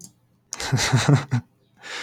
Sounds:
Laughter